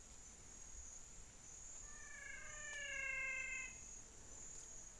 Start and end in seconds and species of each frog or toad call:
1.6	3.9	menwig frog
6:00pm

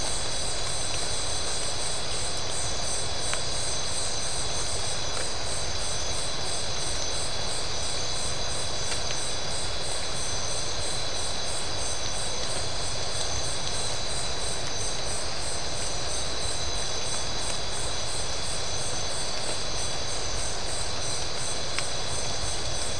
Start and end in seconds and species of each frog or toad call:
none
12:45am

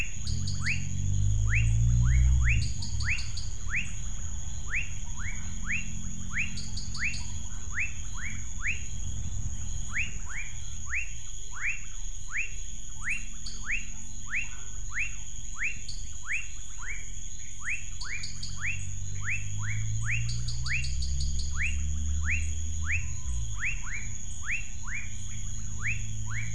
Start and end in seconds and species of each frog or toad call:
0.0	26.5	rufous frog
0.1	0.9	dwarf tree frog
2.5	3.7	dwarf tree frog
6.4	7.4	dwarf tree frog
13.4	13.8	dwarf tree frog
15.8	16.2	dwarf tree frog
17.9	18.8	dwarf tree frog
20.2	21.8	dwarf tree frog
7:00pm

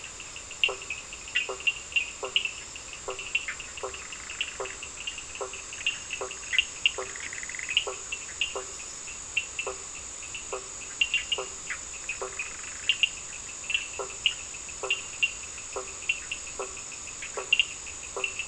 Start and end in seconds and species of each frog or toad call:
0.0	12.5	blacksmith tree frog
0.0	18.4	Cochran's lime tree frog
3.3	5.0	Bischoff's tree frog
6.4	8.0	Bischoff's tree frog
11.6	13.1	Bischoff's tree frog
13.8	18.4	blacksmith tree frog
9:15pm

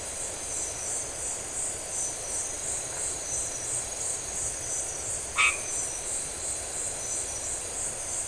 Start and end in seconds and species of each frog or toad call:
5.3	6.0	white-edged tree frog
12:00am

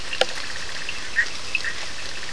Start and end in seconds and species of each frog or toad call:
0.0	1.1	two-colored oval frog
0.0	2.3	Bischoff's tree frog
0.3	2.3	Cochran's lime tree frog
12:30am

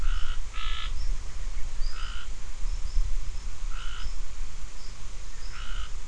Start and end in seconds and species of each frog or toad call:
0.0	0.9	Scinax perereca
1.9	2.3	Scinax perereca
3.7	4.1	Scinax perereca
5.5	5.9	Scinax perereca
5:45pm

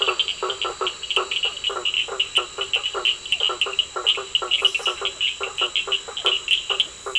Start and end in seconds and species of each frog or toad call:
0.0	5.0	two-colored oval frog
0.0	7.1	blacksmith tree frog
0.0	7.1	Cochran's lime tree frog
9:00pm

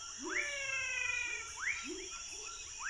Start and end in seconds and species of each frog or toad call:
0.0	2.8	rufous frog
0.0	2.8	pepper frog
0.3	1.8	menwig frog
2.3	2.8	Chaco tree frog
8:30pm

